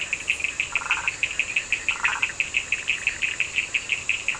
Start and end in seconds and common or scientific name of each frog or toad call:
0.0	2.4	Burmeister's tree frog
0.0	4.3	Cochran's lime tree frog